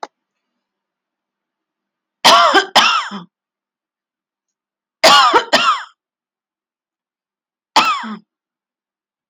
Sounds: Cough